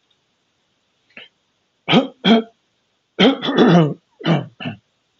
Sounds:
Throat clearing